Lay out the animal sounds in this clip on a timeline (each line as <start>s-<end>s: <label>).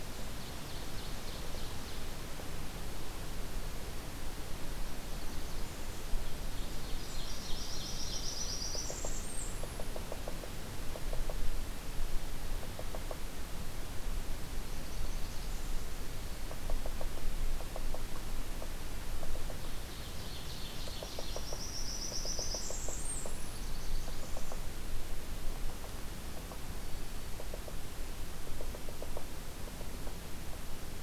0.0s-2.2s: Ovenbird (Seiurus aurocapilla)
7.0s-9.9s: Blackburnian Warbler (Setophaga fusca)
8.5s-31.0s: Yellow-bellied Sapsucker (Sphyrapicus varius)
14.5s-15.9s: Blackburnian Warbler (Setophaga fusca)
19.7s-21.4s: Ovenbird (Seiurus aurocapilla)
21.0s-24.9s: Blackburnian Warbler (Setophaga fusca)